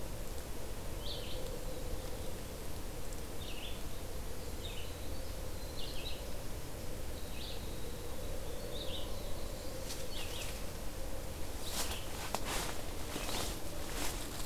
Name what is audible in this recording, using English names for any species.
Red-eyed Vireo, Winter Wren